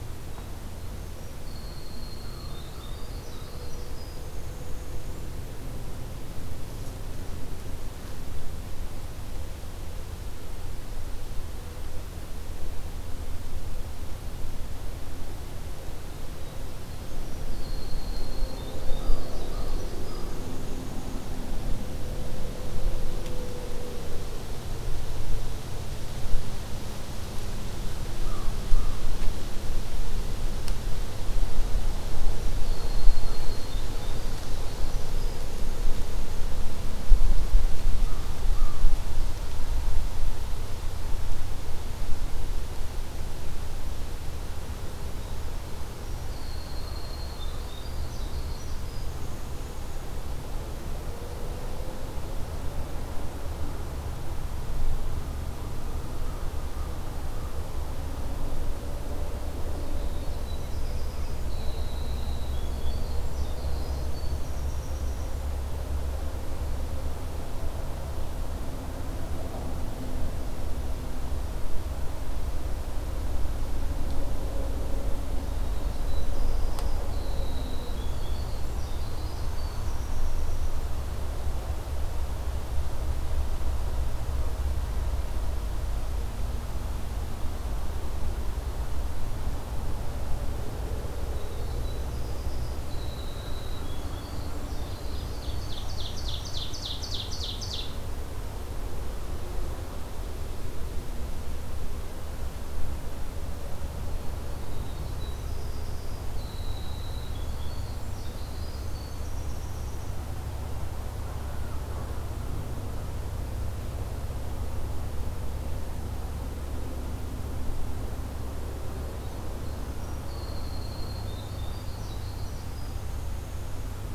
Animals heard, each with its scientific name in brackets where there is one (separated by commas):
American Crow (Corvus brachyrhynchos), Winter Wren (Troglodytes hiemalis), Ovenbird (Seiurus aurocapilla)